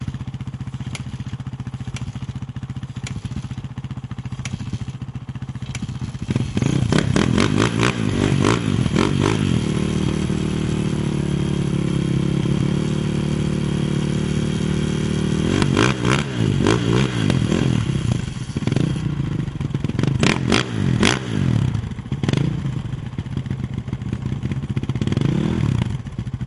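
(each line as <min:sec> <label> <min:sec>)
0:00.0 A motorcycle engine idles. 0:06.2
0:06.2 A motorcycle engine revs periodically. 0:09.8
0:09.7 A motorcycle engine idles. 0:15.4
0:15.4 A motorcycle engine revs periodically. 0:22.8
0:22.9 A motorcycle engine idles. 0:26.5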